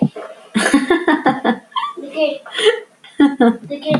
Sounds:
Laughter